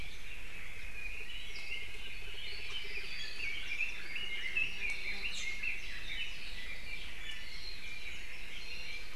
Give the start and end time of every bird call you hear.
0.7s-6.4s: Red-billed Leiothrix (Leiothrix lutea)
1.4s-1.8s: Apapane (Himatione sanguinea)
5.2s-5.6s: Iiwi (Drepanis coccinea)
6.5s-9.1s: Apapane (Himatione sanguinea)

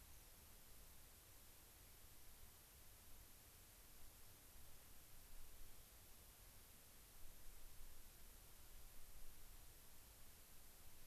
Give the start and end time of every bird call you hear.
0.1s-0.3s: unidentified bird

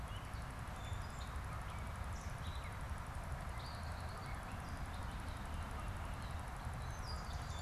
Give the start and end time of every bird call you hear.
0.0s-7.6s: Gray Catbird (Dumetella carolinensis)
7.0s-7.6s: Swamp Sparrow (Melospiza georgiana)

